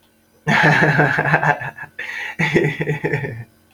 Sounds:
Laughter